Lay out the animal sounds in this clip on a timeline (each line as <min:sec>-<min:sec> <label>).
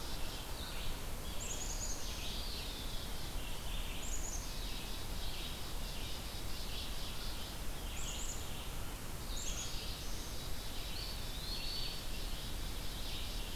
0:00.0-0:00.6 Black-capped Chickadee (Poecile atricapillus)
0:00.0-0:13.6 Red-eyed Vireo (Vireo olivaceus)
0:01.2-0:03.4 Black-capped Chickadee (Poecile atricapillus)
0:04.0-0:07.6 Black-capped Chickadee (Poecile atricapillus)
0:07.9-0:08.9 Black-capped Chickadee (Poecile atricapillus)
0:09.0-0:10.5 Black-throated Blue Warbler (Setophaga caerulescens)
0:09.3-0:13.6 Black-capped Chickadee (Poecile atricapillus)
0:10.8-0:12.2 Eastern Wood-Pewee (Contopus virens)